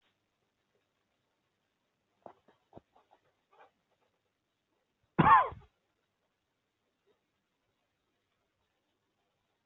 {"expert_labels": [{"quality": "good", "cough_type": "unknown", "dyspnea": false, "wheezing": false, "stridor": false, "choking": false, "congestion": false, "nothing": true, "diagnosis": "healthy cough", "severity": "pseudocough/healthy cough"}], "age": 29, "gender": "male", "respiratory_condition": true, "fever_muscle_pain": false, "status": "symptomatic"}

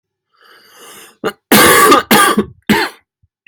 {"expert_labels": [{"quality": "good", "cough_type": "dry", "dyspnea": false, "wheezing": false, "stridor": false, "choking": false, "congestion": false, "nothing": true, "diagnosis": "COVID-19", "severity": "mild"}], "age": 25, "gender": "male", "respiratory_condition": false, "fever_muscle_pain": true, "status": "symptomatic"}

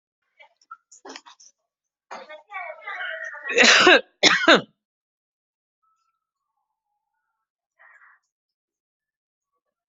{"expert_labels": [{"quality": "ok", "cough_type": "dry", "dyspnea": false, "wheezing": false, "stridor": false, "choking": false, "congestion": false, "nothing": true, "diagnosis": "healthy cough", "severity": "unknown"}], "age": 46, "gender": "male", "respiratory_condition": false, "fever_muscle_pain": false, "status": "COVID-19"}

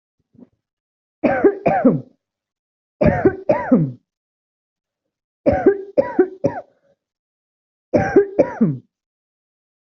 {"expert_labels": [{"quality": "ok", "cough_type": "dry", "dyspnea": false, "wheezing": false, "stridor": true, "choking": false, "congestion": false, "nothing": false, "diagnosis": "obstructive lung disease", "severity": "mild"}], "age": 26, "gender": "male", "respiratory_condition": false, "fever_muscle_pain": true, "status": "symptomatic"}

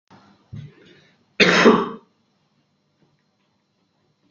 {"expert_labels": [{"quality": "poor", "cough_type": "dry", "dyspnea": false, "wheezing": false, "stridor": false, "choking": false, "congestion": false, "nothing": true, "diagnosis": "healthy cough", "severity": "unknown"}], "age": 32, "gender": "male", "respiratory_condition": false, "fever_muscle_pain": false, "status": "healthy"}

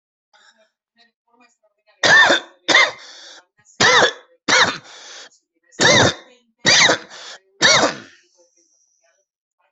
{"expert_labels": [{"quality": "good", "cough_type": "wet", "dyspnea": false, "wheezing": false, "stridor": false, "choking": false, "congestion": false, "nothing": true, "diagnosis": "lower respiratory tract infection", "severity": "severe"}], "age": 40, "gender": "male", "respiratory_condition": false, "fever_muscle_pain": false, "status": "COVID-19"}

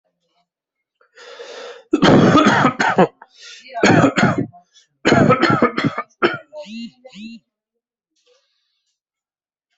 {"expert_labels": [{"quality": "poor", "cough_type": "dry", "dyspnea": false, "wheezing": false, "stridor": false, "choking": false, "congestion": false, "nothing": true, "diagnosis": "COVID-19", "severity": "mild"}], "age": 36, "gender": "female", "respiratory_condition": false, "fever_muscle_pain": false, "status": "COVID-19"}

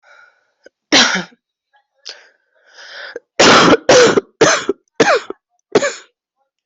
{"expert_labels": [{"quality": "good", "cough_type": "wet", "dyspnea": false, "wheezing": false, "stridor": false, "choking": false, "congestion": false, "nothing": true, "diagnosis": "upper respiratory tract infection", "severity": "mild"}], "age": 39, "gender": "female", "respiratory_condition": false, "fever_muscle_pain": false, "status": "symptomatic"}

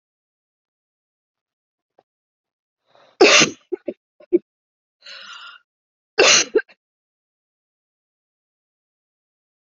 {"expert_labels": [{"quality": "ok", "cough_type": "dry", "dyspnea": false, "wheezing": false, "stridor": false, "choking": false, "congestion": false, "nothing": true, "diagnosis": "upper respiratory tract infection", "severity": "mild"}], "age": 37, "gender": "female", "respiratory_condition": true, "fever_muscle_pain": true, "status": "symptomatic"}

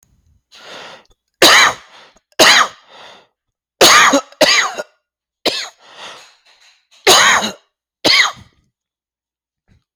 {"expert_labels": [{"quality": "good", "cough_type": "dry", "dyspnea": false, "wheezing": false, "stridor": false, "choking": false, "congestion": false, "nothing": true, "diagnosis": "upper respiratory tract infection", "severity": "mild"}], "age": 35, "gender": "male", "respiratory_condition": false, "fever_muscle_pain": false, "status": "healthy"}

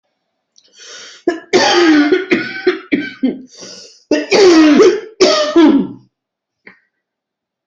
{"expert_labels": [{"quality": "good", "cough_type": "dry", "dyspnea": false, "wheezing": true, "stridor": false, "choking": false, "congestion": false, "nothing": false, "diagnosis": "COVID-19", "severity": "mild"}], "age": 58, "gender": "female", "respiratory_condition": true, "fever_muscle_pain": false, "status": "healthy"}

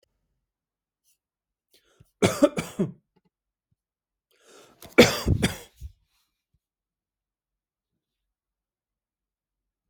{"expert_labels": [{"quality": "good", "cough_type": "dry", "dyspnea": false, "wheezing": false, "stridor": false, "choking": false, "congestion": false, "nothing": true, "diagnosis": "COVID-19", "severity": "mild"}]}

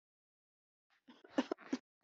{"expert_labels": [{"quality": "poor", "cough_type": "unknown", "dyspnea": false, "wheezing": false, "stridor": false, "choking": false, "congestion": false, "nothing": true, "diagnosis": "upper respiratory tract infection", "severity": "unknown"}], "age": 52, "gender": "female", "respiratory_condition": true, "fever_muscle_pain": false, "status": "symptomatic"}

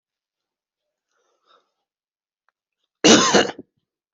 {"expert_labels": [{"quality": "ok", "cough_type": "unknown", "dyspnea": false, "wheezing": false, "stridor": false, "choking": false, "congestion": false, "nothing": true, "diagnosis": "lower respiratory tract infection", "severity": "mild"}], "age": 37, "gender": "male", "respiratory_condition": true, "fever_muscle_pain": true, "status": "symptomatic"}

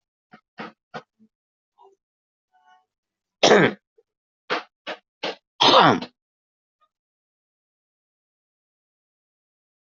{"expert_labels": [{"quality": "good", "cough_type": "dry", "dyspnea": false, "wheezing": false, "stridor": false, "choking": false, "congestion": false, "nothing": true, "diagnosis": "healthy cough", "severity": "pseudocough/healthy cough"}], "age": 32, "gender": "male", "respiratory_condition": false, "fever_muscle_pain": false, "status": "symptomatic"}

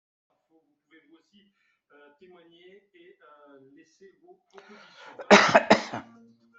{"expert_labels": [{"quality": "good", "cough_type": "dry", "dyspnea": false, "wheezing": false, "stridor": false, "choking": false, "congestion": false, "nothing": true, "diagnosis": "healthy cough", "severity": "pseudocough/healthy cough"}], "age": 56, "gender": "female", "respiratory_condition": true, "fever_muscle_pain": false, "status": "symptomatic"}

